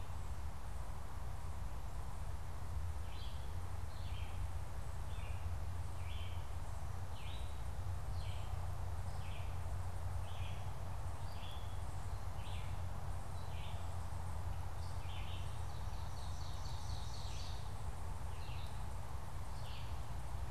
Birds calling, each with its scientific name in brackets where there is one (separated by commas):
Ovenbird (Seiurus aurocapilla), Red-eyed Vireo (Vireo olivaceus)